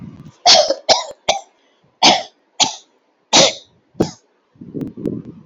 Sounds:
Cough